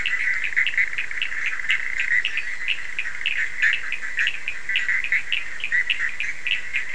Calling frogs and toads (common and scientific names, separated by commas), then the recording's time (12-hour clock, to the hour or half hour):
Bischoff's tree frog (Boana bischoffi), Cochran's lime tree frog (Sphaenorhynchus surdus)
~1am